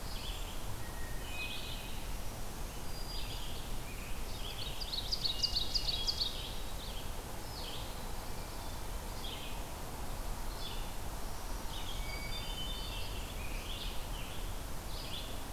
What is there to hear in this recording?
Red-eyed Vireo, Hermit Thrush, Black-throated Green Warbler, Ovenbird, Scarlet Tanager